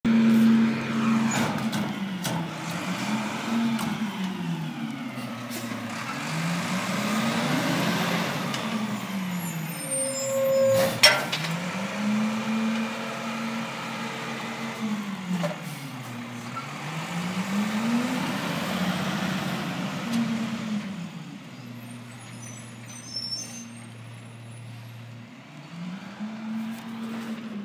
How many times does the vehicle rev up?
five